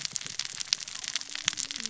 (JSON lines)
{"label": "biophony, cascading saw", "recorder": "SoundTrap 600 or HydroMoth"}